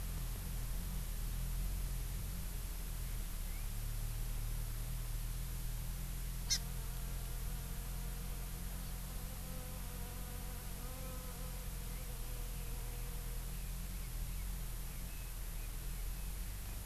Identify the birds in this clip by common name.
Hawaii Amakihi, Eurasian Skylark